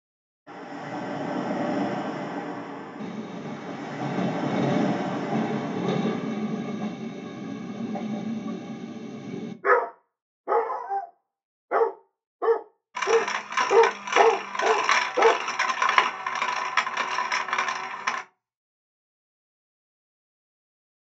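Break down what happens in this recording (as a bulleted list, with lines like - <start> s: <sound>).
- 0.5 s: the sound of the ocean is audible
- 3.0 s: a train can be heard
- 9.6 s: a dog barks
- 12.9 s: a coin drops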